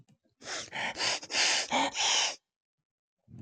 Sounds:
Sniff